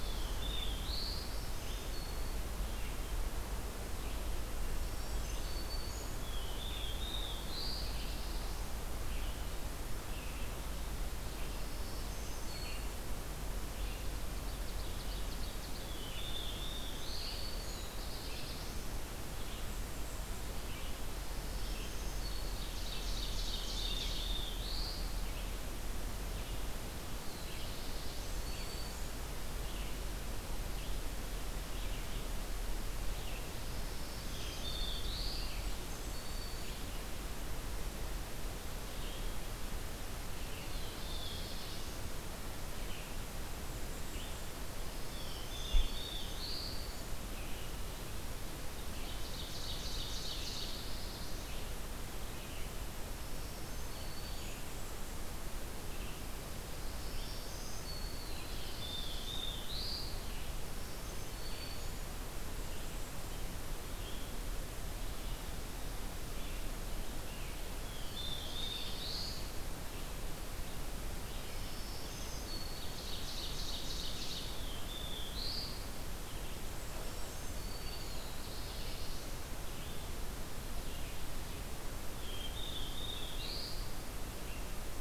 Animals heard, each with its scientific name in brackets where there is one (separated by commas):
Red-eyed Vireo (Vireo olivaceus), Ovenbird (Seiurus aurocapilla), Black-throated Green Warbler (Setophaga virens), Black-throated Blue Warbler (Setophaga caerulescens), Blackburnian Warbler (Setophaga fusca)